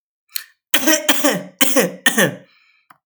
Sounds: Cough